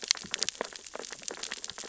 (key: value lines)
label: biophony, sea urchins (Echinidae)
recorder: SoundTrap 600 or HydroMoth